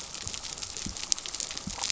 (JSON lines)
{"label": "biophony", "recorder": "SoundTrap 300"}